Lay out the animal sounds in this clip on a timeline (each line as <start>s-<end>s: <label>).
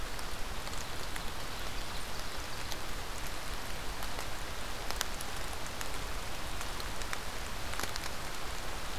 1.1s-2.8s: Ovenbird (Seiurus aurocapilla)